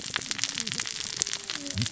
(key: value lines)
label: biophony, cascading saw
recorder: SoundTrap 600 or HydroMoth